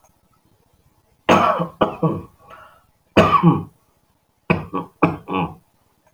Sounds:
Cough